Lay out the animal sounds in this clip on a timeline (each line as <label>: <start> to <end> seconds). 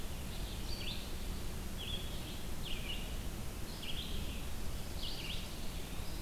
Red-eyed Vireo (Vireo olivaceus): 0.0 to 6.2 seconds